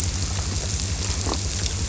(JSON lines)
{"label": "biophony", "recorder": "SoundTrap 300"}